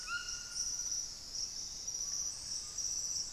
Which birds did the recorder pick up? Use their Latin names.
Ramphastos tucanus, Lipaugus vociferans